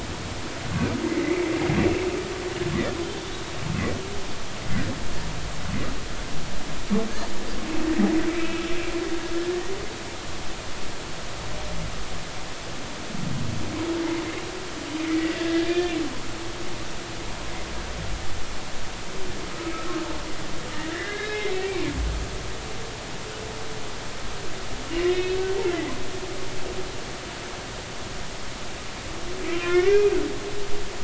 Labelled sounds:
1.0	1.5	humpback whale, 2.0 to 2.5 kHz
8.3	8.6	humpback whale, 2.2 to 2.7 kHz
15.0	16.0	humpback whale, 1.6 to 3.6 kHz
20.9	21.8	humpback whale, 1.5 to 3.9 kHz
24.9	25.9	humpback whale, 1.9 to 3.7 kHz
29.6	30.1	humpback whale, 1.3 to 2.5 kHz

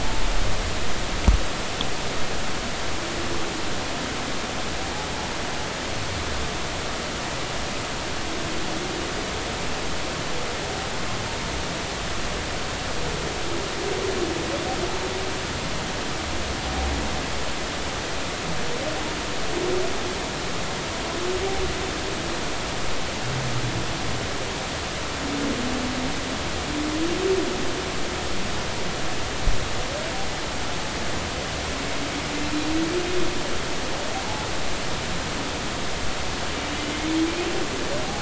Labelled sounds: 34.2	34.5	humpback whale, 0.80 to 0.96 kHz

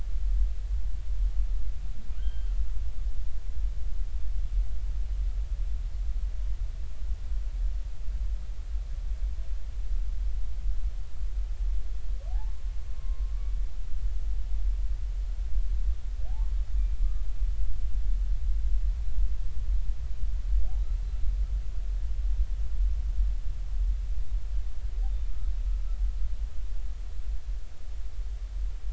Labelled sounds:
2.1	2.5	humpback whale, 1.2 to 3.3 kHz
12.3	13.3	humpback whale, 0.80 to 1.2 kHz

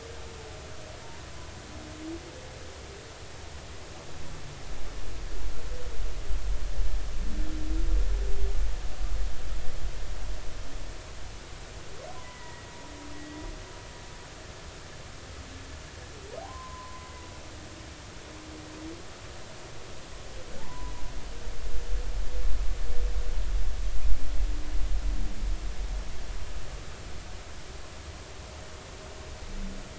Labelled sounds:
12.1	12.7	humpback whale, 0.93 to 2.0 kHz
16.4	17.1	humpback whale, 0.80 to 1.1 kHz
20.6	20.9	humpback whale, 0.83 to 1.1 kHz

